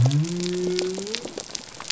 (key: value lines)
label: biophony
recorder: SoundTrap 300